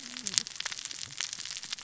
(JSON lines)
{"label": "biophony, cascading saw", "recorder": "SoundTrap 600 or HydroMoth"}